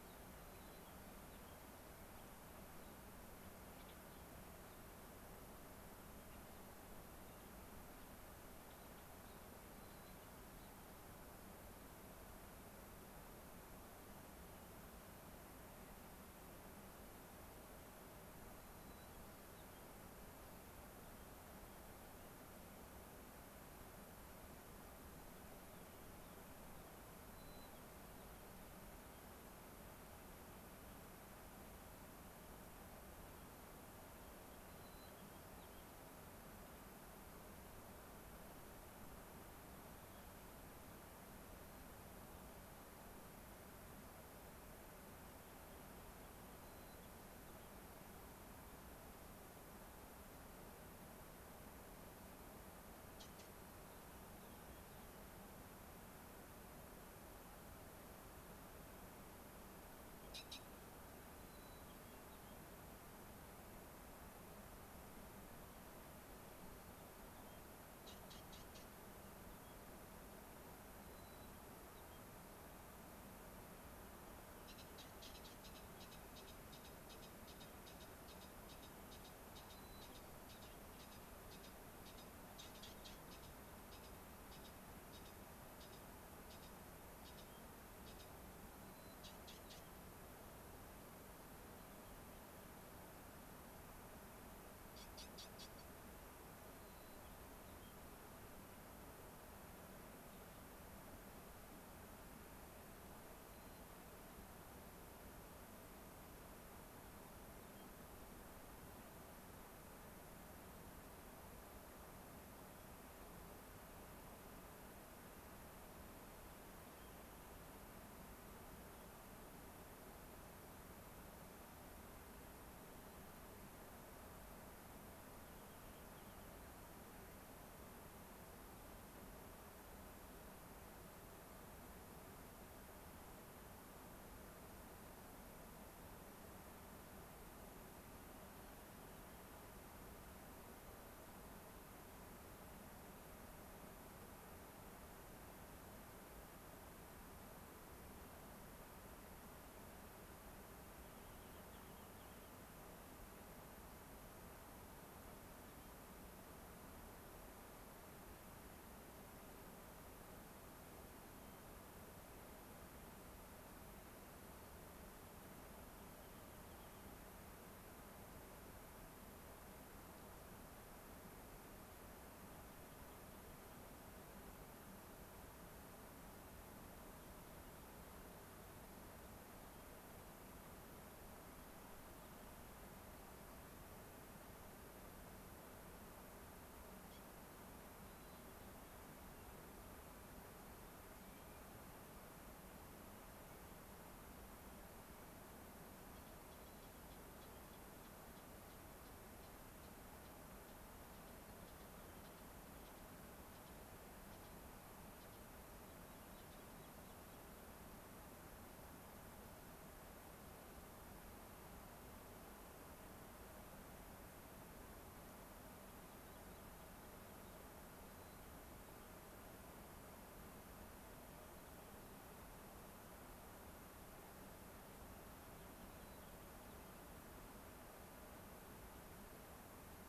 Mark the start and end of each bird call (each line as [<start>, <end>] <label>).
[0.00, 0.40] Rock Wren (Salpinctes obsoletus)
[0.40, 1.60] White-crowned Sparrow (Zonotrichia leucophrys)
[2.10, 2.30] Gray-crowned Rosy-Finch (Leucosticte tephrocotis)
[2.70, 3.00] Gray-crowned Rosy-Finch (Leucosticte tephrocotis)
[3.80, 3.90] Gray-crowned Rosy-Finch (Leucosticte tephrocotis)
[6.10, 6.40] Gray-crowned Rosy-Finch (Leucosticte tephrocotis)
[8.60, 9.50] Gray-crowned Rosy-Finch (Leucosticte tephrocotis)
[9.70, 10.20] White-crowned Sparrow (Zonotrichia leucophrys)
[10.50, 10.70] Gray-crowned Rosy-Finch (Leucosticte tephrocotis)
[18.60, 19.80] White-crowned Sparrow (Zonotrichia leucophrys)
[21.00, 22.30] White-crowned Sparrow (Zonotrichia leucophrys)
[25.00, 27.00] Rock Wren (Salpinctes obsoletus)
[27.30, 27.70] White-crowned Sparrow (Zonotrichia leucophrys)
[33.30, 34.60] unidentified bird
[34.70, 35.80] White-crowned Sparrow (Zonotrichia leucophrys)
[39.40, 40.70] unidentified bird
[45.10, 46.50] Rock Wren (Salpinctes obsoletus)
[46.60, 47.70] White-crowned Sparrow (Zonotrichia leucophrys)
[53.70, 55.30] Rock Wren (Salpinctes obsoletus)
[61.40, 62.60] White-crowned Sparrow (Zonotrichia leucophrys)
[66.50, 67.60] White-crowned Sparrow (Zonotrichia leucophrys)
[68.90, 69.80] White-crowned Sparrow (Zonotrichia leucophrys)
[71.00, 72.20] White-crowned Sparrow (Zonotrichia leucophrys)
[79.70, 80.00] White-crowned Sparrow (Zonotrichia leucophrys)
[88.80, 89.20] White-crowned Sparrow (Zonotrichia leucophrys)
[91.50, 92.40] unidentified bird
[96.70, 98.00] White-crowned Sparrow (Zonotrichia leucophrys)
[103.40, 103.90] White-crowned Sparrow (Zonotrichia leucophrys)
[106.70, 107.90] White-crowned Sparrow (Zonotrichia leucophrys)
[116.20, 117.10] White-crowned Sparrow (Zonotrichia leucophrys)
[125.30, 126.60] Rock Wren (Salpinctes obsoletus)
[138.50, 138.80] White-crowned Sparrow (Zonotrichia leucophrys)
[151.10, 152.60] Rock Wren (Salpinctes obsoletus)
[155.50, 156.00] Rock Wren (Salpinctes obsoletus)
[161.20, 161.70] Rock Wren (Salpinctes obsoletus)
[166.00, 167.20] Rock Wren (Salpinctes obsoletus)
[172.40, 173.80] unidentified bird
[179.50, 179.90] Rock Wren (Salpinctes obsoletus)
[188.00, 189.00] White-crowned Sparrow (Zonotrichia leucophrys)
[191.10, 191.60] Clark's Nutcracker (Nucifraga columbiana)
[196.50, 196.90] White-crowned Sparrow (Zonotrichia leucophrys)
[205.80, 207.40] Rock Wren (Salpinctes obsoletus)
[216.10, 217.60] Rock Wren (Salpinctes obsoletus)
[218.00, 219.10] White-crowned Sparrow (Zonotrichia leucophrys)
[226.00, 226.90] White-crowned Sparrow (Zonotrichia leucophrys)